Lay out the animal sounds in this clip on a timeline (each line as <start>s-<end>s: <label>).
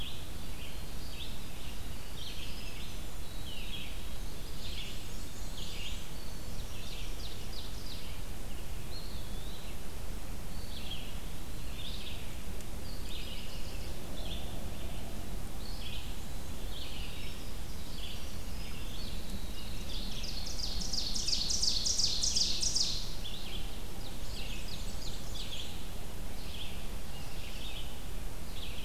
0.0s-28.8s: Red-eyed Vireo (Vireo olivaceus)
0.4s-7.4s: Winter Wren (Troglodytes hiemalis)
4.4s-6.2s: Black-and-white Warbler (Mniotilta varia)
6.1s-8.1s: Ovenbird (Seiurus aurocapilla)
8.7s-9.8s: Eastern Wood-Pewee (Contopus virens)
10.4s-11.9s: Eastern Wood-Pewee (Contopus virens)
12.8s-14.1s: Yellow-rumped Warbler (Setophaga coronata)
15.7s-20.2s: Winter Wren (Troglodytes hiemalis)
19.8s-23.2s: Ovenbird (Seiurus aurocapilla)
23.5s-25.7s: Ovenbird (Seiurus aurocapilla)
24.0s-25.9s: Black-and-white Warbler (Mniotilta varia)